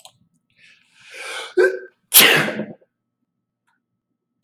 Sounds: Sneeze